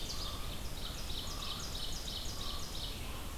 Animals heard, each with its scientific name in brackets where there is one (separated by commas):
Ovenbird (Seiurus aurocapilla), Red-eyed Vireo (Vireo olivaceus), Common Raven (Corvus corax)